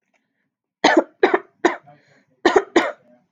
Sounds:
Cough